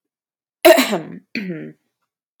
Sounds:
Throat clearing